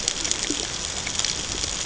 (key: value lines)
label: ambient
recorder: HydroMoth